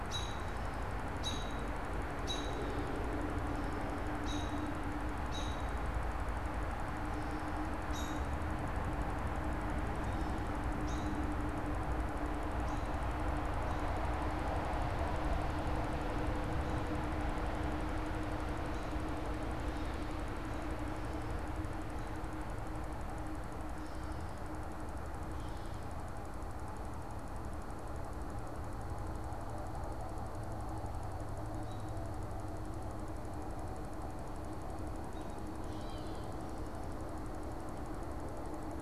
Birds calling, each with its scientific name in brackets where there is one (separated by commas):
Gray Catbird (Dumetella carolinensis), American Robin (Turdus migratorius)